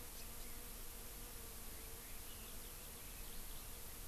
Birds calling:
House Finch (Haemorhous mexicanus), Eurasian Skylark (Alauda arvensis), Red-billed Leiothrix (Leiothrix lutea)

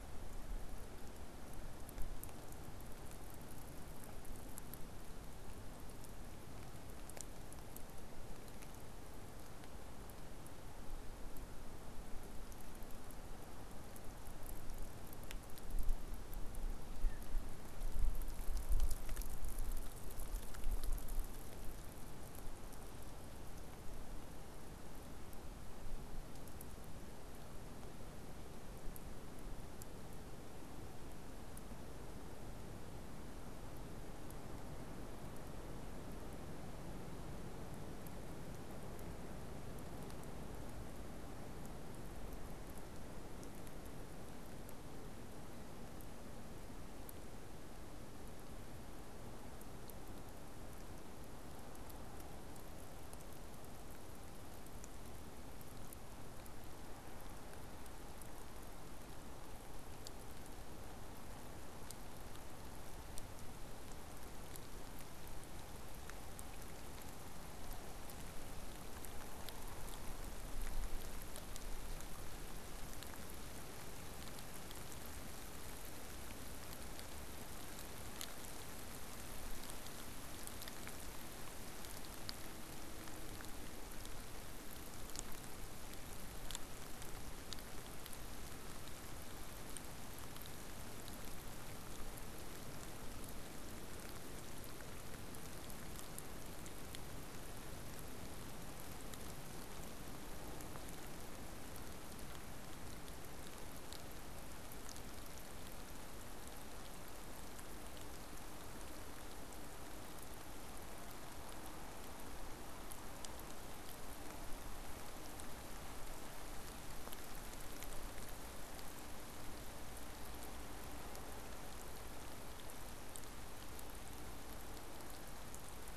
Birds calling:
unidentified bird

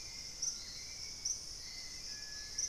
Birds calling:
Hauxwell's Thrush (Turdus hauxwelli), Purple-throated Fruitcrow (Querula purpurata), White-throated Toucan (Ramphastos tucanus)

